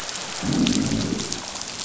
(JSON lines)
{"label": "biophony, growl", "recorder": "SoundTrap 500"}